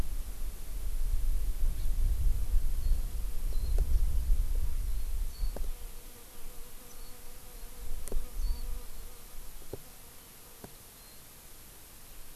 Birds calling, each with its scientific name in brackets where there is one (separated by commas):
Hawaii Amakihi (Chlorodrepanis virens), Warbling White-eye (Zosterops japonicus)